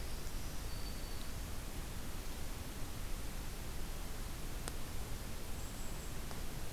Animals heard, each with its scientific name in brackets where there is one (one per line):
Black-throated Green Warbler (Setophaga virens)
Golden-crowned Kinglet (Regulus satrapa)